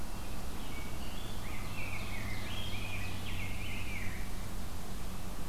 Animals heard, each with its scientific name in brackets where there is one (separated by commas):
Rose-breasted Grosbeak (Pheucticus ludovicianus), Ovenbird (Seiurus aurocapilla)